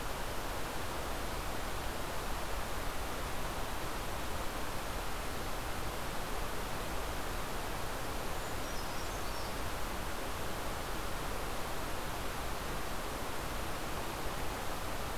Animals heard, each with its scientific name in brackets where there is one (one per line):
Brown Creeper (Certhia americana)